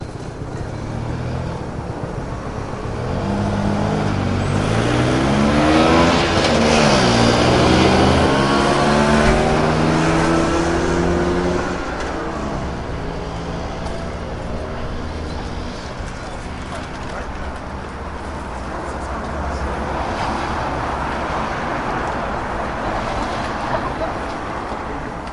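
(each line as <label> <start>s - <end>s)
A heavy motorbike approaches, shifts gears, and then fades away into the distance. 0.0s - 15.9s
Unclear road noise hums in the background. 14.9s - 25.3s
Crowd walking and speaking indistinctly. 15.9s - 20.8s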